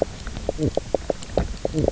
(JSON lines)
{"label": "biophony, knock croak", "recorder": "SoundTrap 300"}